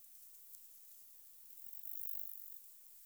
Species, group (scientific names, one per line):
Stenobothrus fischeri
Orthoptera